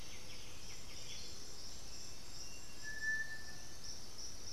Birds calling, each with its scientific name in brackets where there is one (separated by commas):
Black-billed Thrush (Turdus ignobilis), White-winged Becard (Pachyramphus polychopterus), Striped Cuckoo (Tapera naevia)